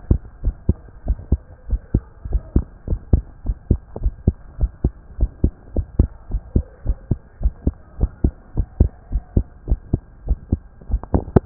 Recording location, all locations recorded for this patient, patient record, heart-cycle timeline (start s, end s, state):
tricuspid valve (TV)
aortic valve (AV)+pulmonary valve (PV)+tricuspid valve (TV)+mitral valve (MV)
#Age: Child
#Sex: Male
#Height: 118.0 cm
#Weight: 20.5 kg
#Pregnancy status: False
#Murmur: Absent
#Murmur locations: nan
#Most audible location: nan
#Systolic murmur timing: nan
#Systolic murmur shape: nan
#Systolic murmur grading: nan
#Systolic murmur pitch: nan
#Systolic murmur quality: nan
#Diastolic murmur timing: nan
#Diastolic murmur shape: nan
#Diastolic murmur grading: nan
#Diastolic murmur pitch: nan
#Diastolic murmur quality: nan
#Outcome: Normal
#Campaign: 2015 screening campaign
0.00	0.41	unannotated
0.41	0.54	S1
0.54	0.66	systole
0.66	0.80	S2
0.80	1.06	diastole
1.06	1.18	S1
1.18	1.28	systole
1.28	1.40	S2
1.40	1.68	diastole
1.68	1.80	S1
1.80	1.90	systole
1.90	2.04	S2
2.04	2.26	diastole
2.26	2.42	S1
2.42	2.52	systole
2.52	2.66	S2
2.66	2.88	diastole
2.88	3.00	S1
3.00	3.08	systole
3.08	3.24	S2
3.24	3.46	diastole
3.46	3.56	S1
3.56	3.68	systole
3.68	3.82	S2
3.82	4.02	diastole
4.02	4.14	S1
4.14	4.24	systole
4.24	4.36	S2
4.36	4.60	diastole
4.60	4.70	S1
4.70	4.80	systole
4.80	4.92	S2
4.92	5.16	diastole
5.16	5.30	S1
5.30	5.40	systole
5.40	5.52	S2
5.52	5.76	diastole
5.76	5.86	S1
5.86	5.98	systole
5.98	6.10	S2
6.10	6.32	diastole
6.32	6.42	S1
6.42	6.54	systole
6.54	6.64	S2
6.64	6.86	diastole
6.86	6.98	S1
6.98	7.10	systole
7.10	7.18	S2
7.18	7.42	diastole
7.42	7.54	S1
7.54	7.66	systole
7.66	7.76	S2
7.76	8.00	diastole
8.00	8.12	S1
8.12	8.20	systole
8.20	8.32	S2
8.32	8.56	diastole
8.56	8.68	S1
8.68	8.78	systole
8.78	8.92	S2
8.92	9.12	diastole
9.12	9.24	S1
9.24	9.32	systole
9.32	9.44	S2
9.44	9.66	diastole
9.66	9.80	S1
9.80	9.92	systole
9.92	10.02	S2
10.02	10.26	diastole
10.26	10.40	S1
10.40	10.48	systole
10.48	10.62	S2
10.62	10.88	diastole
10.88	11.02	S1
11.02	11.46	unannotated